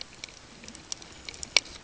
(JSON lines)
{"label": "ambient", "recorder": "HydroMoth"}